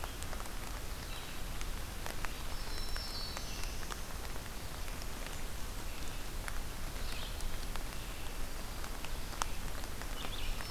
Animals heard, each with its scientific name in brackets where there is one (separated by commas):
Black-throated Blue Warbler (Setophaga caerulescens), Red-eyed Vireo (Vireo olivaceus), Black-throated Green Warbler (Setophaga virens)